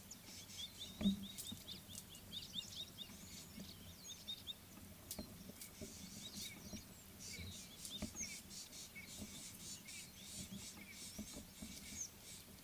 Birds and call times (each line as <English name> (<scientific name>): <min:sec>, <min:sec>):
Gabar Goshawk (Micronisus gabar): 0:01.3
White-bellied Go-away-bird (Corythaixoides leucogaster): 0:10.0